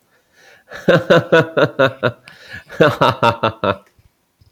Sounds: Laughter